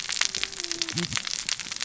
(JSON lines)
{"label": "biophony, cascading saw", "recorder": "SoundTrap 600 or HydroMoth"}